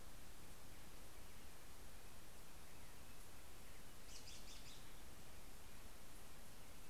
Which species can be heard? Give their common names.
American Robin